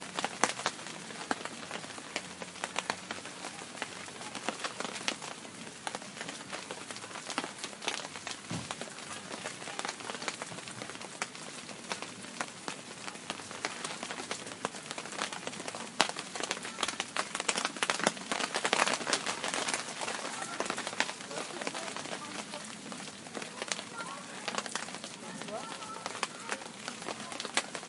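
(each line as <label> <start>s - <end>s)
A camping fire burns with frequent irregular crackling and popping sounds. 0.1s - 27.9s
People are speaking and chatting distantly near a camping fireplace. 4.1s - 8.6s
People are speaking and chatting distantly near a fireplace. 16.6s - 17.4s
A campfire burning with frequent loud crackling and popping sounds. 17.5s - 19.7s
A group of people are speaking and chatting distantly around a camping fireplace. 19.6s - 22.1s
A person is speaking faintly in French near a camping fireplace. 25.2s - 26.3s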